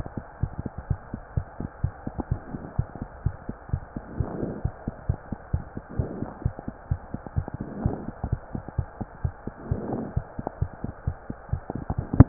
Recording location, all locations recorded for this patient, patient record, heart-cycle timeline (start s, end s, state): mitral valve (MV)
aortic valve (AV)+pulmonary valve (PV)+tricuspid valve (TV)+mitral valve (MV)
#Age: Child
#Sex: Male
#Height: 122.0 cm
#Weight: 28.1 kg
#Pregnancy status: False
#Murmur: Absent
#Murmur locations: nan
#Most audible location: nan
#Systolic murmur timing: nan
#Systolic murmur shape: nan
#Systolic murmur grading: nan
#Systolic murmur pitch: nan
#Systolic murmur quality: nan
#Diastolic murmur timing: nan
#Diastolic murmur shape: nan
#Diastolic murmur grading: nan
#Diastolic murmur pitch: nan
#Diastolic murmur quality: nan
#Outcome: Normal
#Campaign: 2015 screening campaign
0.00	2.29	unannotated
2.29	2.39	S1
2.39	2.51	systole
2.51	2.60	S2
2.60	2.78	diastole
2.78	2.88	S1
2.88	2.99	systole
2.99	3.08	S2
3.08	3.24	diastole
3.24	3.36	S1
3.36	3.47	systole
3.47	3.56	S2
3.56	3.72	diastole
3.72	3.84	S1
3.84	3.94	systole
3.94	4.06	S2
4.06	4.18	diastole
4.18	4.30	S1
4.30	4.38	systole
4.38	4.54	S2
4.54	4.64	diastole
4.64	4.70	S1
4.70	4.84	systole
4.84	4.95	S2
4.95	5.07	diastole
5.07	5.18	S1
5.18	5.29	systole
5.29	5.38	S2
5.38	5.51	diastole
5.51	5.64	S1
5.64	5.75	systole
5.75	5.82	S2
5.82	5.98	diastole
5.98	6.10	S1
6.10	6.20	systole
6.20	6.28	S2
6.28	6.44	diastole
6.44	6.54	S1
6.54	6.65	systole
6.65	6.74	S2
6.74	6.89	diastole
6.89	7.00	S1
7.00	7.11	systole
7.11	7.22	S2
7.22	7.34	diastole
7.34	7.46	S1
7.46	7.58	systole
7.58	7.68	S2
7.68	7.84	diastole
7.84	7.90	S1
7.90	8.05	systole
8.05	8.15	S2
8.15	12.29	unannotated